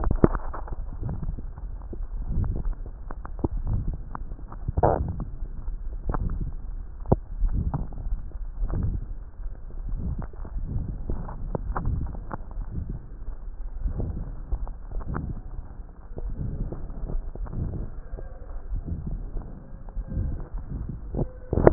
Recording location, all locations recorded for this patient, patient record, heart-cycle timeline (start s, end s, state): aortic valve (AV)
aortic valve (AV)+pulmonary valve (PV)+tricuspid valve (TV)+mitral valve (MV)
#Age: Adolescent
#Sex: Male
#Height: 148.0 cm
#Weight: 35.2 kg
#Pregnancy status: False
#Murmur: Present
#Murmur locations: aortic valve (AV)+mitral valve (MV)+pulmonary valve (PV)+tricuspid valve (TV)
#Most audible location: pulmonary valve (PV)
#Systolic murmur timing: Holosystolic
#Systolic murmur shape: Diamond
#Systolic murmur grading: III/VI or higher
#Systolic murmur pitch: Medium
#Systolic murmur quality: Harsh
#Diastolic murmur timing: Early-diastolic
#Diastolic murmur shape: Decrescendo
#Diastolic murmur grading: III/IV or IV/IV
#Diastolic murmur pitch: Medium
#Diastolic murmur quality: Blowing
#Outcome: Abnormal
#Campaign: 2014 screening campaign
0.00	0.64	unannotated
0.64	1.02	diastole
1.02	1.16	S1
1.16	1.28	systole
1.28	1.38	S2
1.38	2.37	diastole
2.37	2.53	S1
2.53	2.66	systole
2.66	2.76	S2
2.76	3.57	diastole
3.57	3.75	S1
3.75	3.88	systole
3.88	4.02	S2
4.02	4.81	diastole
4.81	4.98	S1
4.98	5.16	systole
5.16	5.29	S2
5.29	6.07	diastole
6.07	6.23	S1
6.23	6.40	systole
6.40	6.52	S2
6.52	7.37	diastole
7.37	21.73	unannotated